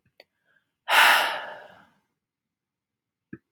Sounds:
Sigh